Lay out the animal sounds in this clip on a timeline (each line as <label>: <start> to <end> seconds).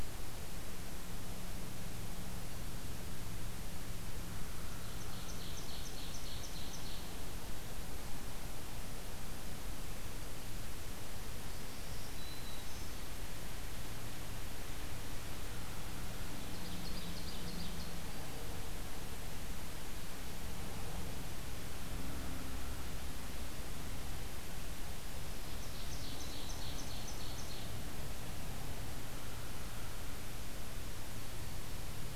Ovenbird (Seiurus aurocapilla): 4.6 to 7.1 seconds
Black-throated Green Warbler (Setophaga virens): 11.5 to 13.0 seconds
Ovenbird (Seiurus aurocapilla): 16.4 to 17.9 seconds
Black-throated Green Warbler (Setophaga virens): 18.0 to 18.5 seconds
Black-throated Green Warbler (Setophaga virens): 25.2 to 26.9 seconds
Ovenbird (Seiurus aurocapilla): 25.5 to 27.7 seconds
Black-throated Green Warbler (Setophaga virens): 31.1 to 31.7 seconds